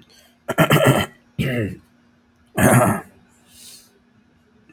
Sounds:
Throat clearing